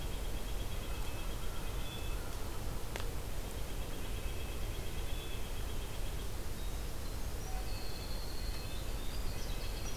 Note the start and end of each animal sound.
[0.00, 1.77] White-breasted Nuthatch (Sitta carolinensis)
[0.78, 2.27] Red-breasted Nuthatch (Sitta canadensis)
[1.15, 2.43] American Crow (Corvus brachyrhynchos)
[3.40, 6.28] White-breasted Nuthatch (Sitta carolinensis)
[3.99, 5.48] Red-breasted Nuthatch (Sitta canadensis)
[6.47, 9.96] Winter Wren (Troglodytes hiemalis)
[7.49, 9.96] Red-breasted Nuthatch (Sitta canadensis)
[9.12, 9.96] White-breasted Nuthatch (Sitta carolinensis)

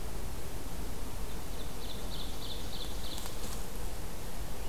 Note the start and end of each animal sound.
[1.30, 3.59] Ovenbird (Seiurus aurocapilla)

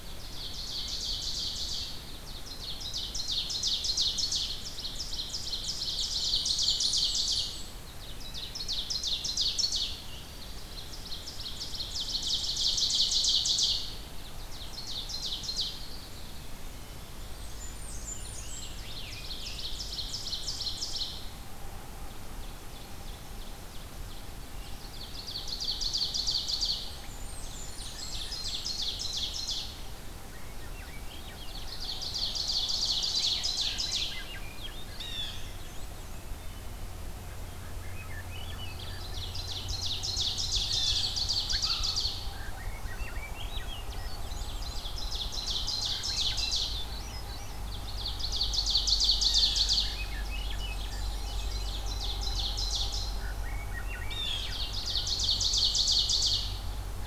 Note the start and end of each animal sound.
[0.00, 16.42] Ovenbird (Seiurus aurocapilla)
[5.93, 8.04] Blackburnian Warbler (Setophaga fusca)
[17.12, 19.02] Blackburnian Warbler (Setophaga fusca)
[17.84, 19.69] Scarlet Tanager (Piranga olivacea)
[17.98, 21.35] Ovenbird (Seiurus aurocapilla)
[21.90, 29.86] Ovenbird (Seiurus aurocapilla)
[26.83, 28.79] Blackburnian Warbler (Setophaga fusca)
[30.02, 31.82] Swainson's Thrush (Catharus ustulatus)
[31.02, 34.39] Ovenbird (Seiurus aurocapilla)
[33.89, 36.33] Swainson's Thrush (Catharus ustulatus)
[34.80, 35.71] Blue Jay (Cyanocitta cristata)
[37.34, 39.02] Swainson's Thrush (Catharus ustulatus)
[38.43, 42.52] Ovenbird (Seiurus aurocapilla)
[41.43, 41.97] unidentified call
[42.37, 44.91] Swainson's Thrush (Catharus ustulatus)
[43.91, 47.01] Ovenbird (Seiurus aurocapilla)
[45.62, 48.05] Swainson's Thrush (Catharus ustulatus)
[47.69, 53.23] Ovenbird (Seiurus aurocapilla)
[48.97, 49.77] Blue Jay (Cyanocitta cristata)
[49.40, 51.85] Swainson's Thrush (Catharus ustulatus)
[52.85, 55.34] Swainson's Thrush (Catharus ustulatus)
[53.89, 54.73] Blue Jay (Cyanocitta cristata)
[54.20, 56.63] Ovenbird (Seiurus aurocapilla)

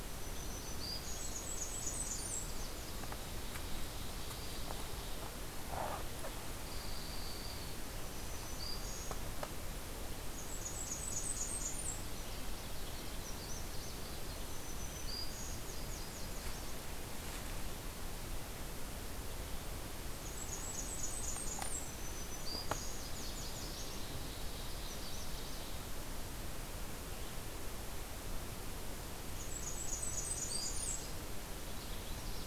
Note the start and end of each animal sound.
[0.00, 1.38] Black-throated Green Warbler (Setophaga virens)
[0.92, 2.81] Blackburnian Warbler (Setophaga fusca)
[3.04, 5.09] Ovenbird (Seiurus aurocapilla)
[6.59, 7.81] Pine Warbler (Setophaga pinus)
[7.93, 9.29] Black-throated Green Warbler (Setophaga virens)
[10.18, 12.18] Blackburnian Warbler (Setophaga fusca)
[11.96, 13.36] Red-breasted Nuthatch (Sitta canadensis)
[12.08, 14.36] Magnolia Warbler (Setophaga magnolia)
[14.28, 15.73] Black-throated Green Warbler (Setophaga virens)
[15.64, 17.30] Nashville Warbler (Leiothlypis ruficapilla)
[20.06, 22.13] Blackburnian Warbler (Setophaga fusca)
[21.64, 23.15] Black-throated Green Warbler (Setophaga virens)
[22.49, 24.08] Nashville Warbler (Leiothlypis ruficapilla)
[23.46, 24.96] Ovenbird (Seiurus aurocapilla)
[24.65, 25.75] Magnolia Warbler (Setophaga magnolia)
[29.13, 31.25] Blackburnian Warbler (Setophaga fusca)
[29.60, 31.38] Black-throated Green Warbler (Setophaga virens)
[31.65, 32.47] Magnolia Warbler (Setophaga magnolia)

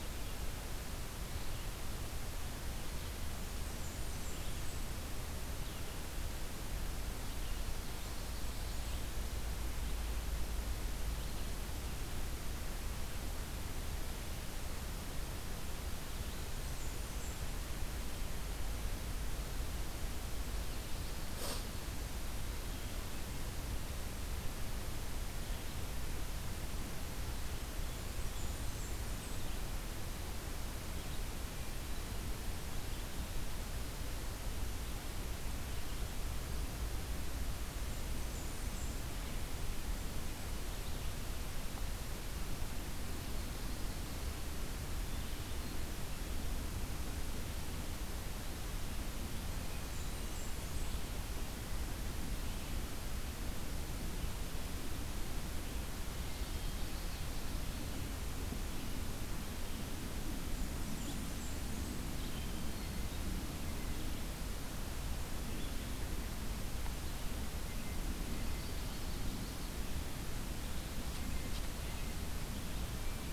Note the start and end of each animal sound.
[3.31, 4.93] Blackburnian Warbler (Setophaga fusca)
[7.85, 9.07] Blackburnian Warbler (Setophaga fusca)
[16.18, 17.44] Blackburnian Warbler (Setophaga fusca)
[28.14, 29.47] Blackburnian Warbler (Setophaga fusca)
[37.68, 38.96] Blackburnian Warbler (Setophaga fusca)
[49.74, 50.92] Blackburnian Warbler (Setophaga fusca)
[56.40, 57.61] Common Yellowthroat (Geothlypis trichas)
[60.39, 62.11] Blackburnian Warbler (Setophaga fusca)
[62.63, 63.37] Black-capped Chickadee (Poecile atricapillus)

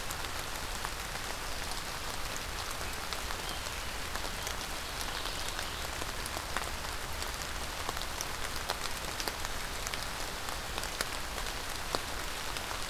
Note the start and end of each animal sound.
[4.28, 5.82] Mourning Warbler (Geothlypis philadelphia)

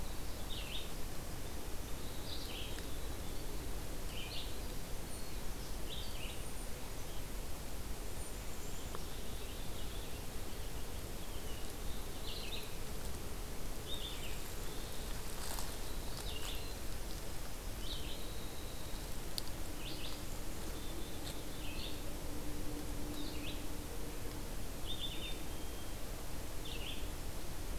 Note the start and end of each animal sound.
[0.00, 27.79] Red-eyed Vireo (Vireo olivaceus)
[6.14, 7.34] Black-capped Chickadee (Poecile atricapillus)
[7.84, 9.10] Black-capped Chickadee (Poecile atricapillus)
[15.67, 16.85] Black-capped Chickadee (Poecile atricapillus)
[16.81, 19.60] Winter Wren (Troglodytes hiemalis)
[20.00, 21.76] Black-capped Chickadee (Poecile atricapillus)
[24.73, 26.08] Black-capped Chickadee (Poecile atricapillus)

